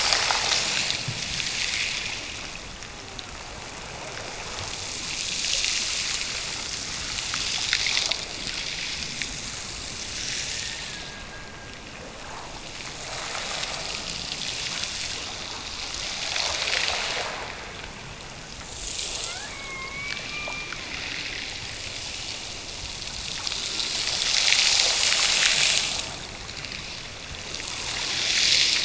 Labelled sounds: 10.4	12.2	killer whale, Bigg's (transient), Gulf of Alaska transient, 1.4 to 2.0 kHz

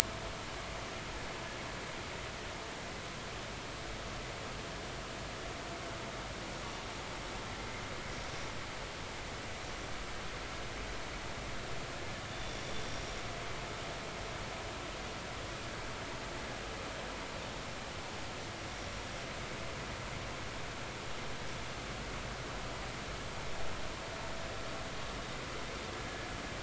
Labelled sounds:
12.3	12.7	vessel noise, 3.4 to 5.8 kHz

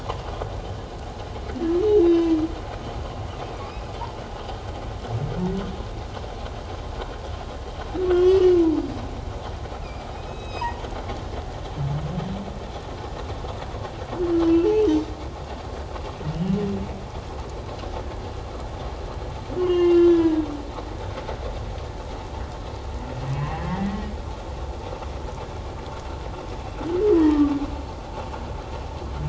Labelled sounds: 2.0	2.3	humpback whale, 3.7 to 3.8 kHz
8.1	8.5	humpback whale, 1.1 to 3.4 kHz
9.8	10.7	humpback whale, 2.3 to 3.9 kHz
14.7	15.0	humpback whale, 3.0 to 3.2 kHz
19.6	20.5	humpback whale, 0.88 to 3.9 kHz
23.3	23.6	humpback whale, 0.97 to 2.9 kHz
27.2	27.5	humpback whale, 1.8 to 3.3 kHz

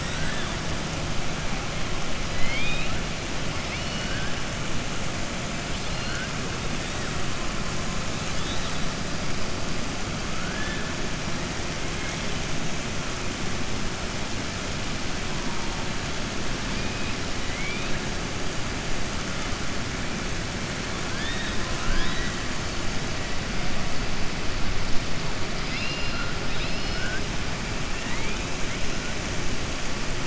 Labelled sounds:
0.0	0.5	killer whale, southern resident, 1.0 to 4.0 kHz
2.3	2.9	killer whale, southern resident, 2.0 to 4.9 kHz
3.6	4.3	killer whale, southern resident, 1.5 to 5.3 kHz
17.4	17.9	killer whale, southern resident, 1.9 to 3.5 kHz
25.9	27.2	killer whale, southern resident, 1.4 to 5.3 kHz

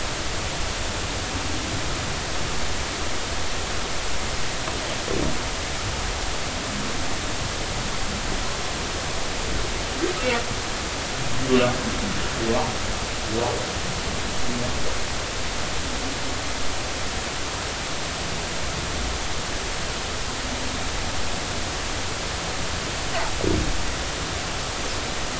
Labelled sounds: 11.4	11.7	humpback whale, 2.6 to 2.9 kHz

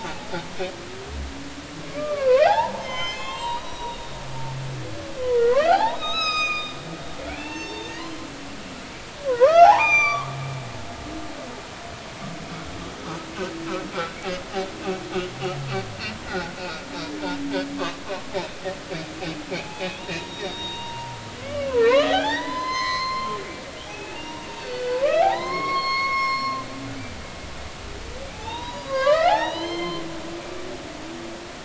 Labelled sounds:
0.0	0.3	humpback whale, 0.80 to 0.93 kHz
1.9	4.2	humpback whale, 0.80 to 7.6 kHz
5.2	6.7	humpback whale, 0.80 to 7.6 kHz
7.3	8.8	humpback whale, 0.96 to 6.6 kHz
9.2	10.3	humpback whale, 0.80 to 6.1 kHz
16.3	16.8	humpback whale, 1.3 to 2.6 kHz
18.1	18.3	humpback whale, 0.90 to 1.2 kHz
19.5	21.1	humpback whale, 0.80 to 3.8 kHz
21.4	23.4	humpback whale, 0.80 to 6.3 kHz
23.8	26.7	humpback whale, 0.80 to 5.5 kHz
28.3	30.0	humpback whale, 0.80 to 5.0 kHz

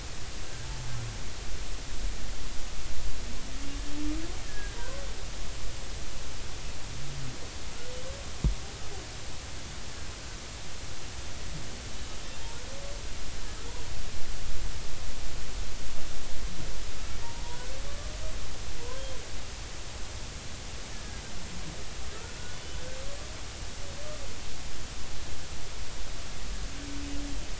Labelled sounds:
0.6	0.9	humpback whale, 0.83 to 0.93 kHz
4.4	5.0	humpback whale, 0.90 to 1.8 kHz
17.4	17.7	humpback whale, 0.90 to 1.0 kHz

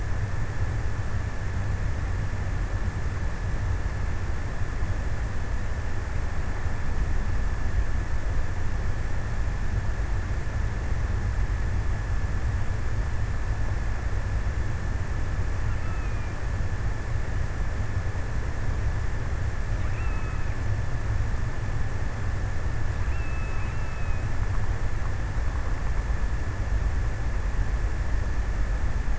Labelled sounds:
14.9	16.8	killer whale, offshore, 1.0 to 3.1 kHz
19.7	21.0	killer whale, offshore, 0.93 to 3.0 kHz
22.7	24.4	killer whale, offshore, 0.91 to 3.1 kHz

